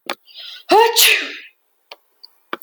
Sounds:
Sneeze